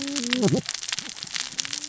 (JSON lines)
{"label": "biophony, cascading saw", "recorder": "SoundTrap 600 or HydroMoth"}